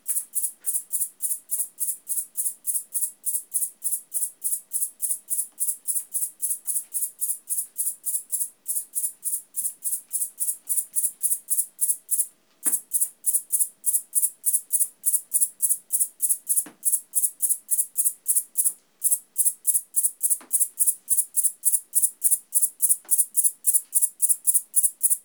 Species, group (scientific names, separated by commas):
Liara magna, Orthoptera